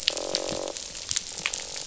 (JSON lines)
{"label": "biophony, croak", "recorder": "SoundTrap 500"}